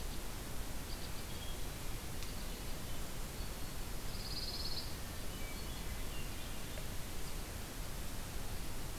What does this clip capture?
White-winged Crossbill, Pine Warbler, Hermit Thrush